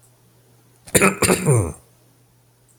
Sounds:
Throat clearing